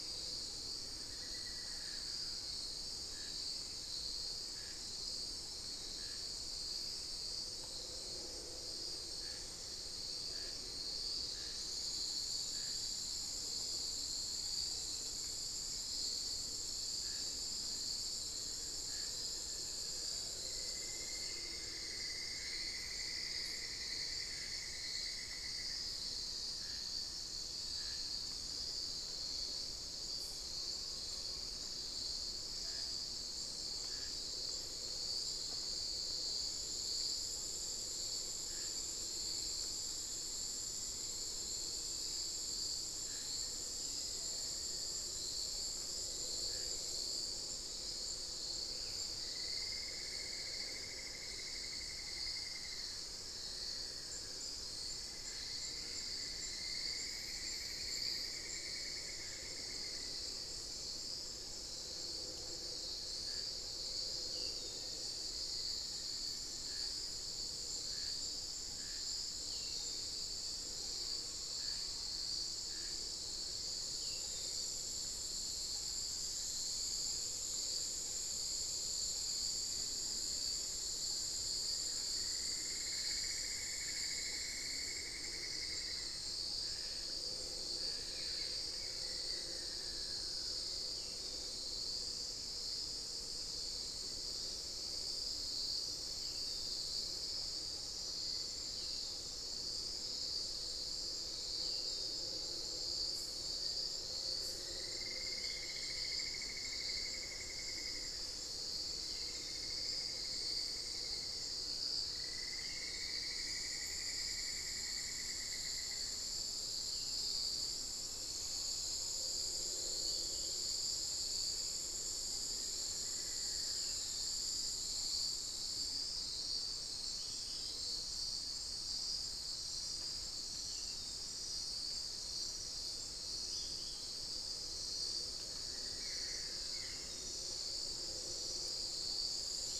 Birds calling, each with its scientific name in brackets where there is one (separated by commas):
Cinnamon-throated Woodcreeper (Dendrexetastes rufigula), Buff-throated Woodcreeper (Xiphorhynchus guttatus), Amazonian Pygmy-Owl (Glaucidium hardyi), Black-faced Antthrush (Formicarius analis), unidentified bird, Amazonian Barred-Woodcreeper (Dendrocolaptes certhia)